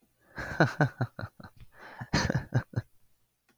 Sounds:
Laughter